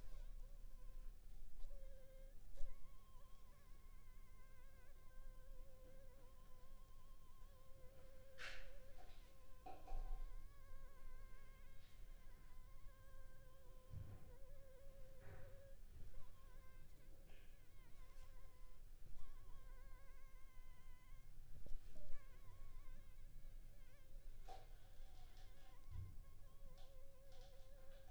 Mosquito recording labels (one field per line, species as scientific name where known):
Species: Anopheles funestus s.s.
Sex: female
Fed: unfed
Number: one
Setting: cup